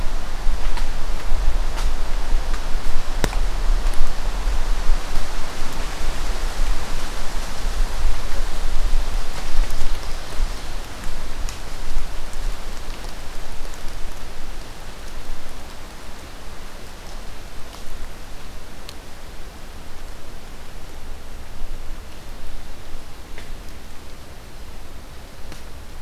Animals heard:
forest ambience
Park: Marsh-Billings-Rockefeller National Historical Park